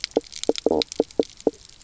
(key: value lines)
label: biophony, knock croak
recorder: SoundTrap 300